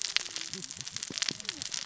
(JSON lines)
{"label": "biophony, cascading saw", "recorder": "SoundTrap 600 or HydroMoth"}